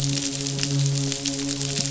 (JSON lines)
{"label": "biophony, midshipman", "recorder": "SoundTrap 500"}